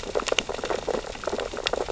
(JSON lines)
{"label": "biophony, sea urchins (Echinidae)", "recorder": "SoundTrap 600 or HydroMoth"}